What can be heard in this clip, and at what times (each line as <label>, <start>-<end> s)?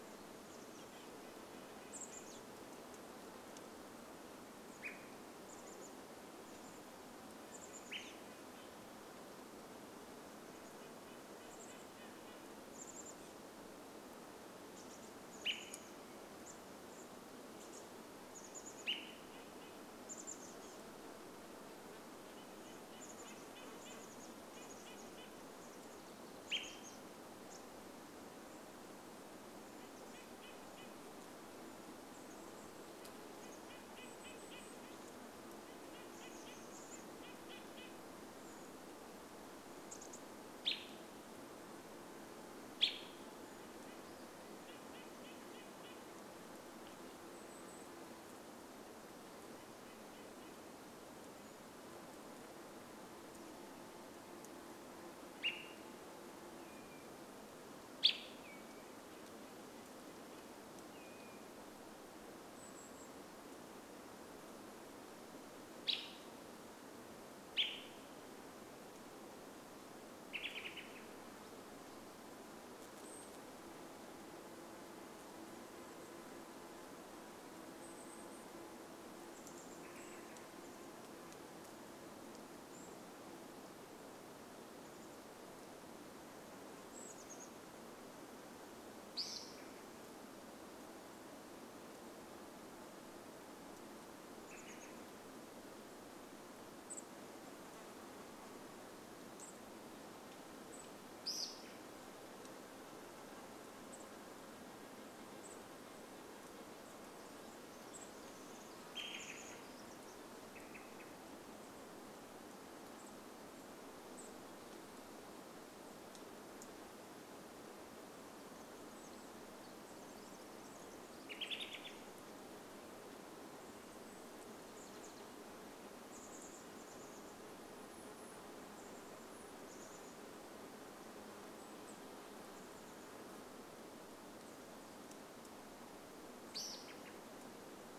Red-breasted Nuthatch song, 0-4 s
Chestnut-backed Chickadee call, 0-8 s
Olive-sided Flycatcher call, 4-6 s
American Robin call, 6-8 s
Red-breasted Nuthatch song, 8-14 s
Chestnut-backed Chickadee call, 10-28 s
American Robin call, 14-16 s
American Robin call, 18-20 s
Red-breasted Nuthatch song, 18-20 s
Red-breasted Nuthatch song, 22-26 s
American Robin call, 26-28 s
Red-breasted Nuthatch song, 28-38 s
Chestnut-backed Chickadee call, 30-34 s
Golden-crowned Kinglet call, 34-36 s
Chestnut-backed Chickadee call, 36-38 s
Golden-crowned Kinglet call, 38-40 s
American Robin call, 40-44 s
Red-breasted Nuthatch song, 42-46 s
Golden-crowned Kinglet call, 46-48 s
Red-breasted Nuthatch song, 48-52 s
insect buzz, 52-54 s
Olive-sided Flycatcher call, 54-56 s
insect buzz, 56-58 s
Say's Phoebe song, 56-62 s
American Robin call, 58-60 s
Red-breasted Nuthatch song, 58-62 s
Golden-crowned Kinglet call, 62-64 s
American Robin call, 64-68 s
American Robin call, 70-72 s
Golden-crowned Kinglet call, 72-74 s
insect buzz, 72-82 s
Chestnut-backed Chickadee call, 78-80 s
American Robin call, 78-82 s
Golden-crowned Kinglet call, 78-84 s
Chestnut-backed Chickadee call, 84-88 s
American Robin call, 88-90 s
Chestnut-backed Chickadee call, 94-96 s
Olive-sided Flycatcher call, 94-96 s
insect buzz, 96-98 s
unidentified bird chip note, 96-106 s
American Robin call, 100-102 s
insect buzz, 100-110 s
Chestnut-backed Chickadee call, 106-110 s
Pacific Wren song, 106-112 s
Olive-sided Flycatcher call, 110-112 s
unidentified bird chip note, 112-118 s
Pacific Wren song, 118-122 s
American Robin call, 120-122 s
Chestnut-backed Chickadee call, 124-134 s
American Robin call, 136-138 s